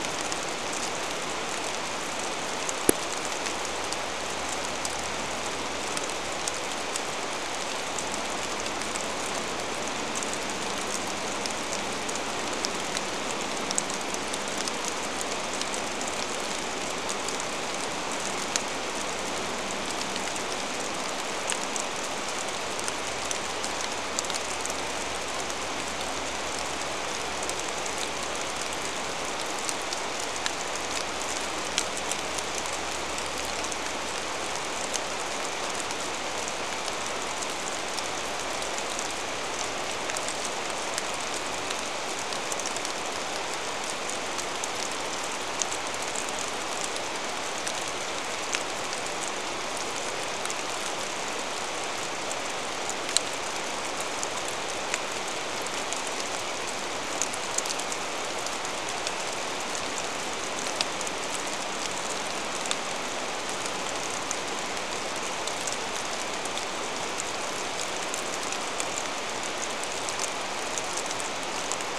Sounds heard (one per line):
rain
vehicle engine